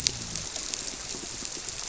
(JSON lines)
{"label": "biophony", "recorder": "SoundTrap 300"}